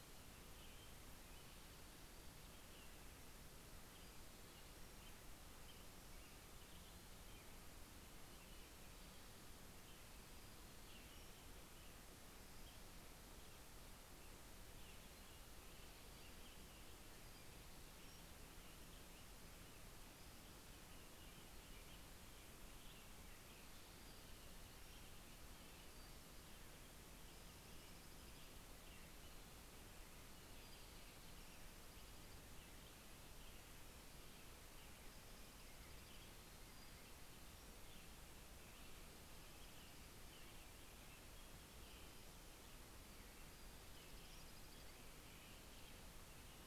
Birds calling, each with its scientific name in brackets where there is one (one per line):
American Robin (Turdus migratorius)
Dark-eyed Junco (Junco hyemalis)
Pacific-slope Flycatcher (Empidonax difficilis)